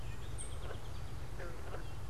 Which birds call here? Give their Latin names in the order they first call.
Melospiza melodia, Dumetella carolinensis, unidentified bird